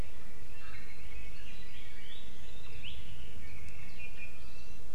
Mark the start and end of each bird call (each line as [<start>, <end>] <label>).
[0.44, 2.24] Red-billed Leiothrix (Leiothrix lutea)
[3.94, 4.94] Apapane (Himatione sanguinea)